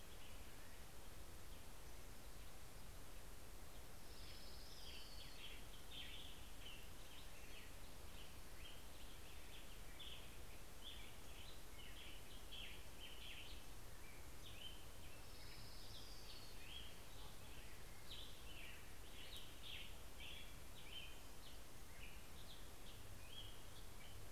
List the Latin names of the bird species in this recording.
Leiothlypis celata, Piranga ludoviciana, Turdus migratorius